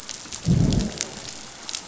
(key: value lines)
label: biophony, growl
recorder: SoundTrap 500